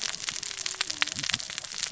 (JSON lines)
{"label": "biophony, cascading saw", "recorder": "SoundTrap 600 or HydroMoth"}